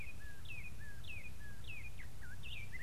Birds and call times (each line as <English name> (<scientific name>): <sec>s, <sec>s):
Spotted Morning-Thrush (Cichladusa guttata): 1.8s